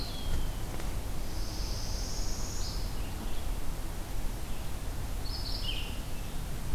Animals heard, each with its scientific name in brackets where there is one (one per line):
Eastern Wood-Pewee (Contopus virens)
Red-eyed Vireo (Vireo olivaceus)
Northern Parula (Setophaga americana)